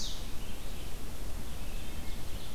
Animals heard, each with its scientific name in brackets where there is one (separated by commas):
Red-eyed Vireo (Vireo olivaceus), Ovenbird (Seiurus aurocapilla)